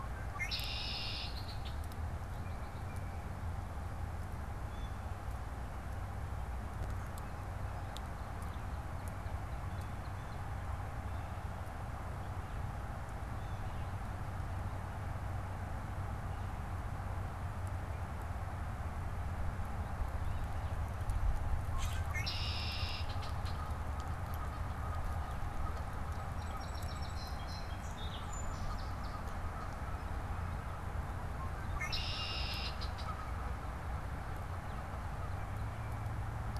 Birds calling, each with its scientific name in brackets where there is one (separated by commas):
Tufted Titmouse (Baeolophus bicolor), Red-winged Blackbird (Agelaius phoeniceus), Blue Jay (Cyanocitta cristata), Song Sparrow (Melospiza melodia), Northern Cardinal (Cardinalis cardinalis)